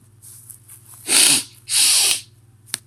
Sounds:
Sniff